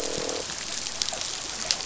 {"label": "biophony, croak", "recorder": "SoundTrap 500"}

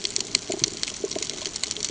{"label": "ambient", "recorder": "HydroMoth"}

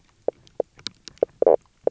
{"label": "biophony, knock croak", "recorder": "SoundTrap 300"}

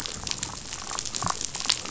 {"label": "biophony, damselfish", "recorder": "SoundTrap 500"}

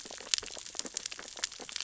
{"label": "biophony, sea urchins (Echinidae)", "recorder": "SoundTrap 600 or HydroMoth"}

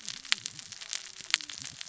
{"label": "biophony, cascading saw", "recorder": "SoundTrap 600 or HydroMoth"}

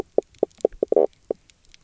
{"label": "biophony, knock croak", "recorder": "SoundTrap 300"}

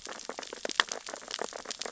{"label": "biophony, sea urchins (Echinidae)", "recorder": "SoundTrap 600 or HydroMoth"}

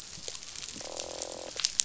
{"label": "biophony, croak", "recorder": "SoundTrap 500"}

